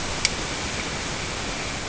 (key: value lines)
label: ambient
recorder: HydroMoth